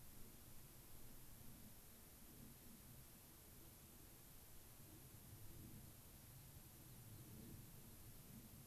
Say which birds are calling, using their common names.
American Pipit